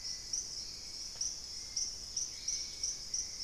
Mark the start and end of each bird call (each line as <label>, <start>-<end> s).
Hauxwell's Thrush (Turdus hauxwelli), 0.0-3.4 s
Dusky-capped Greenlet (Pachysylvia hypoxantha), 1.9-3.1 s